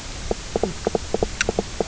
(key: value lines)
label: biophony, knock croak
recorder: SoundTrap 300